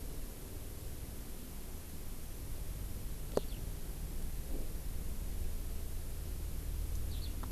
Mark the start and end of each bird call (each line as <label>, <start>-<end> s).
Eurasian Skylark (Alauda arvensis), 3.3-3.6 s
Eurasian Skylark (Alauda arvensis), 7.1-7.3 s